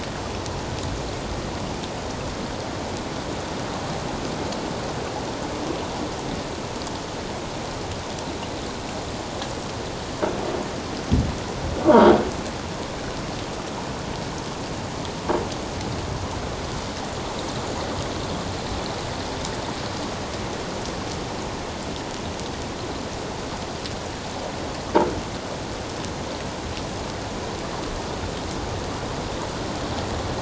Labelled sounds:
11.9	12.2	Pacific white-sided dolphin, 3.1 to 3.4 kHz

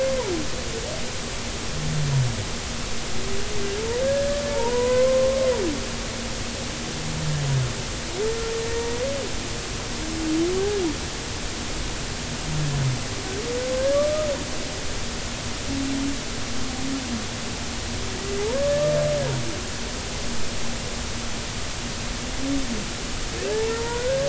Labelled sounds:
4.0	5.4	humpback whale, 0.86 to 1.8 kHz
8.8	9.0	humpback whale, 0.90 to 0.99 kHz
13.9	14.3	humpback whale, 1.1 to 1.4 kHz
18.4	18.7	humpback whale, 0.80 to 1.2 kHz
23.5	24.2	humpback whale, 0.83 to 1.7 kHz

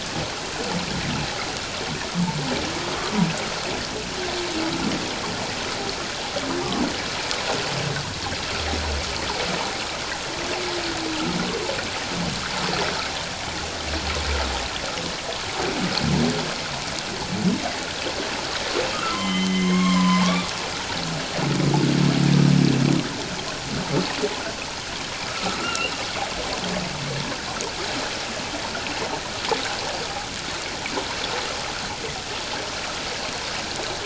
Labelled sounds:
18.9	20.5	humpback whale, 0.97 to 6.5 kHz
25.3	25.9	humpback whale, 1.2 to 3.0 kHz

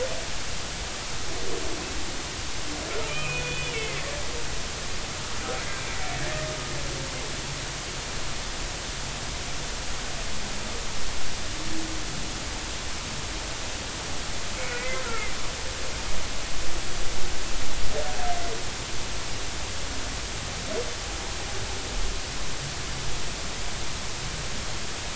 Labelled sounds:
3.1	4.0	humpback whale, 2.0 to 3.5 kHz
6.2	6.4	humpback whale, 1.6 to 1.9 kHz
14.7	15.3	humpback whale, 1.2 to 2.1 kHz

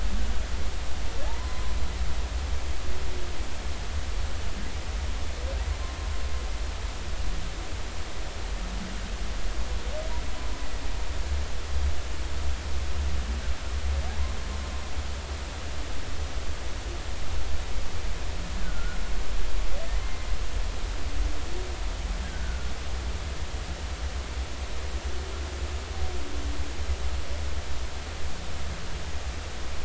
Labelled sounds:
1.3	1.7	humpback whale, 0.80 to 1.1 kHz
14.1	14.3	humpback whale, 0.80 to 1.1 kHz
18.6	19.0	humpback whale, 1.3 to 1.7 kHz
19.9	20.3	humpback whale, 1.8 to 2.1 kHz
22.2	22.7	humpback whale, 1.3 to 1.7 kHz

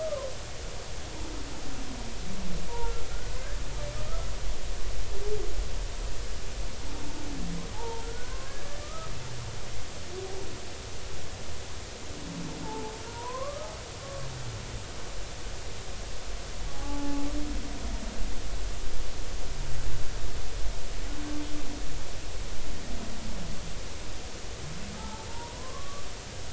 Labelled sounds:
0.0	0.3	humpback whale, 0.96 to 1.3 kHz
3.1	3.4	humpback whale, 1.3 to 1.5 kHz
7.7	9.1	humpback whale, 0.80 to 1.8 kHz
12.6	13.7	humpback whale, 0.80 to 1.3 kHz
14.0	14.3	humpback whale, 1.1 to 1.2 kHz
16.7	17.3	humpback whale, 0.80 to 0.90 kHz
24.9	26.1	humpback whale, 0.83 to 1.4 kHz

